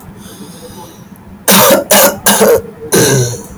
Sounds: Cough